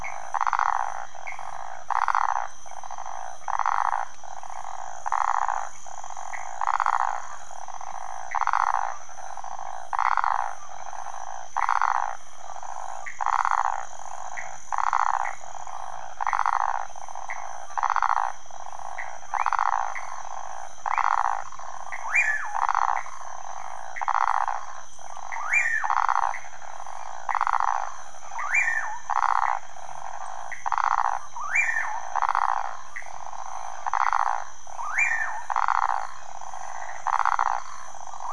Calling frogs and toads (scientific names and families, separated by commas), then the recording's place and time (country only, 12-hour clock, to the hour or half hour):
Phyllomedusa sauvagii (Hylidae), Pithecopus azureus (Hylidae), Leptodactylus fuscus (Leptodactylidae)
Brazil, 4am